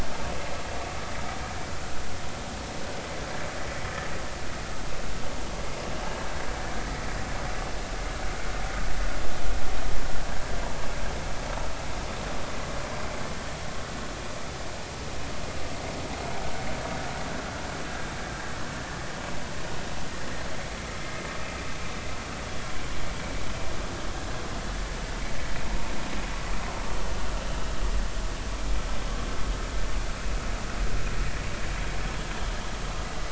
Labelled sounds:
17.9	18.1	vessel noise, 1.5 to 1.7 kHz
21.0	21.3	vessel noise, 2.0 to 2.2 kHz

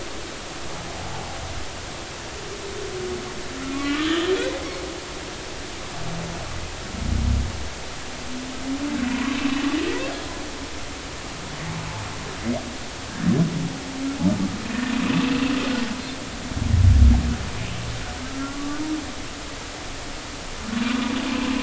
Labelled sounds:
3.6	4.8	humpback whale, 1.1 to 3.3 kHz
9.1	9.4	humpback whale, 0.93 to 1.2 kHz
15.0	15.4	humpback whale, 2.4 to 2.7 kHz
18.2	18.9	humpback whale, 1.1 to 1.5 kHz

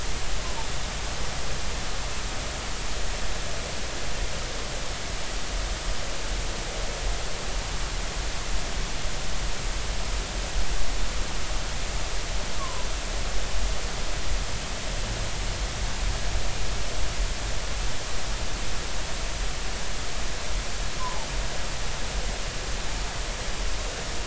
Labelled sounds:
12.6	12.9	humpback whale, 0.90 to 1.2 kHz
21.0	21.3	humpback whale, 0.80 to 1.1 kHz

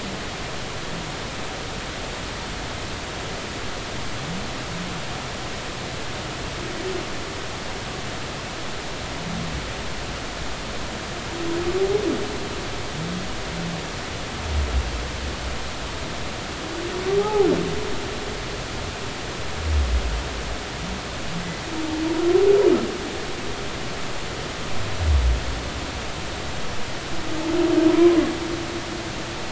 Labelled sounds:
17.2	17.5	humpback whale, 0.80 to 0.93 kHz

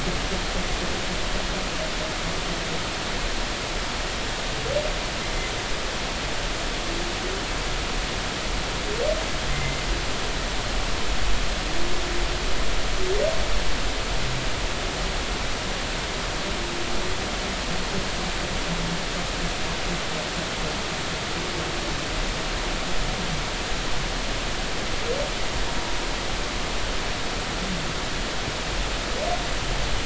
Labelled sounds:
9.5	9.8	humpback whale, 2.0 to 2.1 kHz

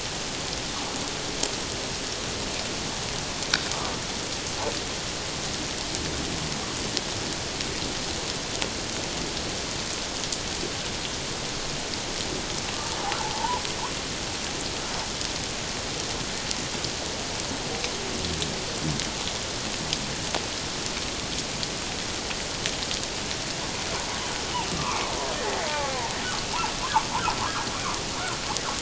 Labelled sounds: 13.2	13.6	humpback whale, 0.78 to 1.1 kHz
24.7	26.0	humpback whale, 0.78 to 1.2 kHz

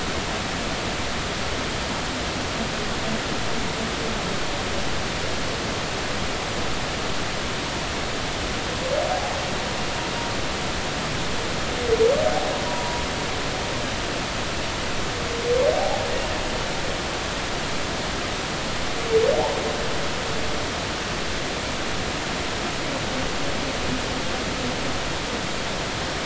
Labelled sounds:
12.7	13.0	humpback whale, 0.93 to 1.0 kHz
15.8	16.0	humpback whale, 0.80 to 0.90 kHz

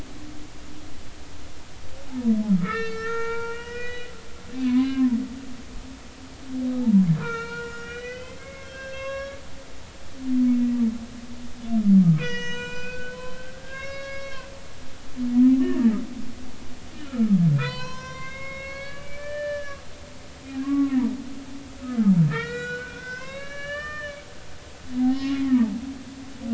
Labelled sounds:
2.6	4.1	humpback whale, 0.86 to 7.0 kHz
4.5	5.2	humpback whale, 0.86 to 3.0 kHz
6.8	9.4	humpback whale, 0.80 to 6.0 kHz
12.2	14.5	humpback whale, 0.93 to 7.5 kHz
15.6	15.9	humpback whale, 1.6 to 1.9 kHz
17.0	19.8	humpback whale, 0.90 to 6.8 kHz
20.4	21.0	humpback whale, 1.0 to 2.5 kHz
21.9	24.2	humpback whale, 0.96 to 7.4 kHz
25.0	25.4	humpback whale, 0.80 to 1.2 kHz

